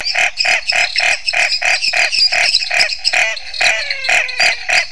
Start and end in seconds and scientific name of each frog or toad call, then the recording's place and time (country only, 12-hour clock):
0.0	3.2	Dendropsophus minutus
0.0	4.9	Dendropsophus nanus
0.0	4.9	Scinax fuscovarius
2.9	4.9	Physalaemus albonotatus
Brazil, 7:30pm